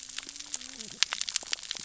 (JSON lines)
{"label": "biophony, cascading saw", "recorder": "SoundTrap 600 or HydroMoth"}